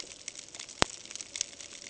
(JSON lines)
{"label": "ambient", "recorder": "HydroMoth"}